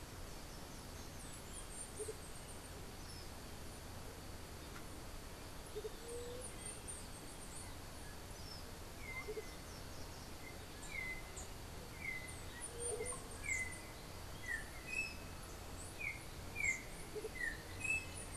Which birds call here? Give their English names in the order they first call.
Andean Motmot, Chestnut-capped Brushfinch, White-tipped Dove, Yellow-backed Oriole